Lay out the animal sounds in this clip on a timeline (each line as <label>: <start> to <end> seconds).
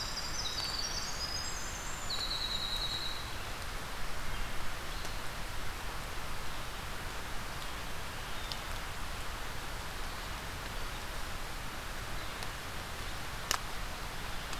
Winter Wren (Troglodytes hiemalis): 0.0 to 3.9 seconds
Blackburnian Warbler (Setophaga fusca): 2.0 to 3.2 seconds